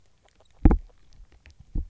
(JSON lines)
{"label": "biophony, grazing", "recorder": "SoundTrap 300"}